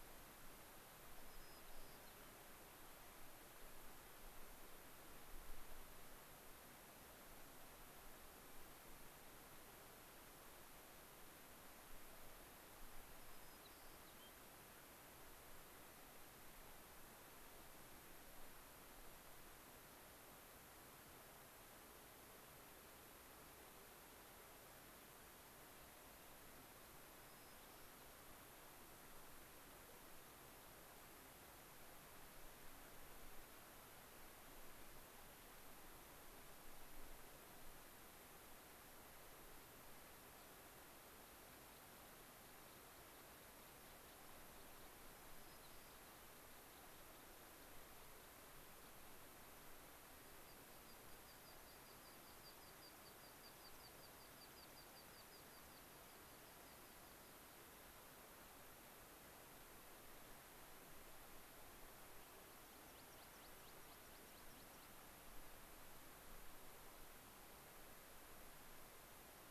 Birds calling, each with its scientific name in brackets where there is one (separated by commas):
White-crowned Sparrow (Zonotrichia leucophrys), American Pipit (Anthus rubescens)